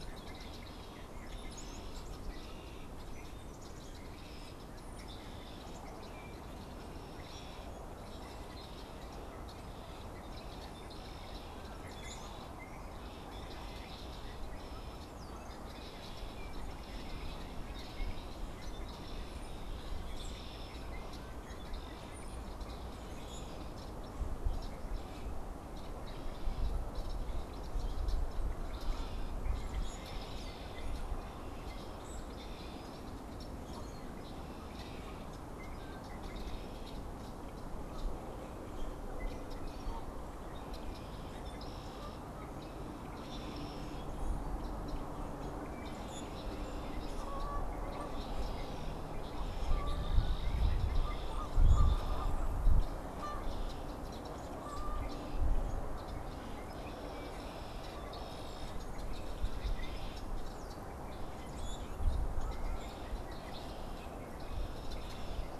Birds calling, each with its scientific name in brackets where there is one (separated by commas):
Canada Goose (Branta canadensis), Red-winged Blackbird (Agelaius phoeniceus), Common Grackle (Quiscalus quiscula)